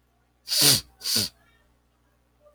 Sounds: Sniff